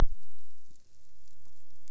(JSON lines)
{"label": "biophony", "recorder": "SoundTrap 300"}